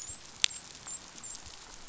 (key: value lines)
label: biophony, dolphin
recorder: SoundTrap 500